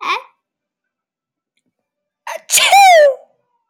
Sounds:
Sneeze